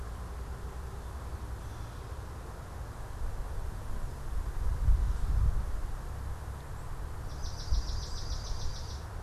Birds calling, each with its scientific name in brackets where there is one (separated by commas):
Gray Catbird (Dumetella carolinensis), Swamp Sparrow (Melospiza georgiana)